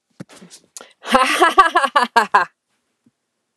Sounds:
Laughter